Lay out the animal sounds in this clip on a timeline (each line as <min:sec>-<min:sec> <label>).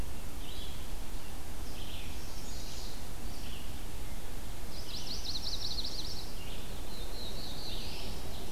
0:00.0-0:08.5 Red-eyed Vireo (Vireo olivaceus)
0:01.8-0:03.1 Chestnut-sided Warbler (Setophaga pensylvanica)
0:04.5-0:06.4 Chestnut-sided Warbler (Setophaga pensylvanica)
0:06.7-0:08.3 Black-throated Blue Warbler (Setophaga caerulescens)